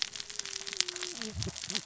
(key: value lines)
label: biophony, cascading saw
recorder: SoundTrap 600 or HydroMoth